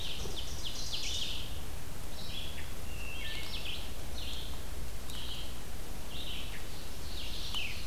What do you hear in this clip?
Ovenbird, Red-eyed Vireo, Wood Thrush